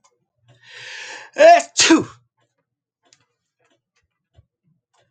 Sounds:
Sneeze